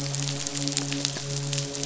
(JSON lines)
{"label": "biophony, midshipman", "recorder": "SoundTrap 500"}